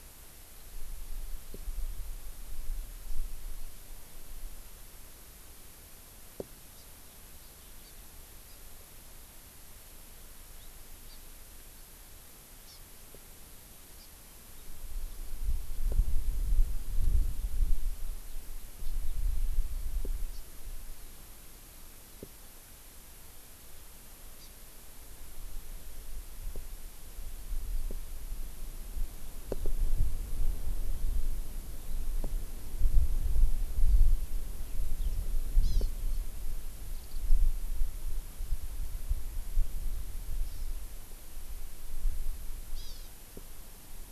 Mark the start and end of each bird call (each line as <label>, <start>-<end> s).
Hawaii Amakihi (Chlorodrepanis virens), 6.8-6.9 s
Hawaii Amakihi (Chlorodrepanis virens), 7.8-7.9 s
Hawaii Amakihi (Chlorodrepanis virens), 8.5-8.6 s
Hawaii Amakihi (Chlorodrepanis virens), 11.1-11.2 s
Hawaii Amakihi (Chlorodrepanis virens), 12.7-12.8 s
Hawaii Amakihi (Chlorodrepanis virens), 14.0-14.1 s
Hawaii Amakihi (Chlorodrepanis virens), 20.3-20.4 s
Hawaii Amakihi (Chlorodrepanis virens), 24.4-24.5 s
Eurasian Skylark (Alauda arvensis), 35.0-35.1 s
Hawaii Amakihi (Chlorodrepanis virens), 35.7-35.9 s
Warbling White-eye (Zosterops japonicus), 37.0-37.2 s
Hawaii Amakihi (Chlorodrepanis virens), 40.5-40.7 s
Hawaii Amakihi (Chlorodrepanis virens), 42.8-43.1 s